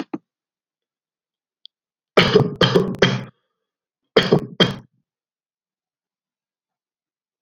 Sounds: Cough